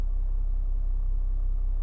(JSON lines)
{"label": "anthrophony, boat engine", "recorder": "SoundTrap 300"}